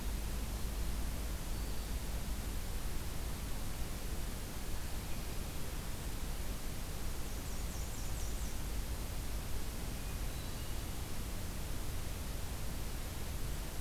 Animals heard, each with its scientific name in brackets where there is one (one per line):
Black-throated Green Warbler (Setophaga virens)
Black-and-white Warbler (Mniotilta varia)
Hermit Thrush (Catharus guttatus)